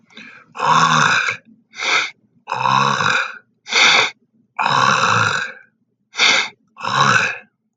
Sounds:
Throat clearing